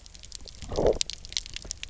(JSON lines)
{"label": "biophony, low growl", "recorder": "SoundTrap 300"}